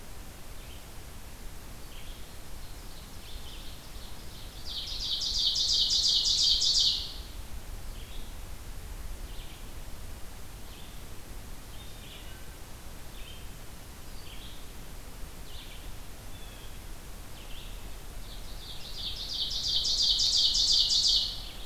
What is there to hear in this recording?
Red-eyed Vireo, Ovenbird, Wood Thrush, Blue Jay